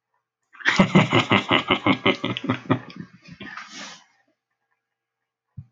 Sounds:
Laughter